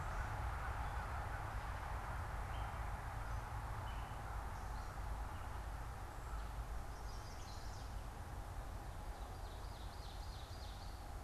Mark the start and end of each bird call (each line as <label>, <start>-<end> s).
Gray Catbird (Dumetella carolinensis), 2.3-6.1 s
Chestnut-sided Warbler (Setophaga pensylvanica), 6.7-8.1 s
Common Yellowthroat (Geothlypis trichas), 8.8-11.2 s